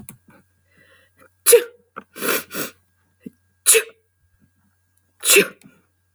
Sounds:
Sneeze